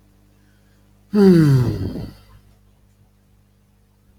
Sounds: Sigh